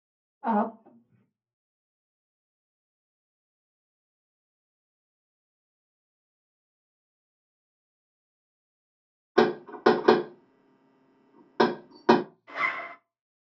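At 0.4 seconds, someone says "Up." Then, at 9.4 seconds, knocking can be heard. After that, at 12.5 seconds, the sound of a zipper is heard.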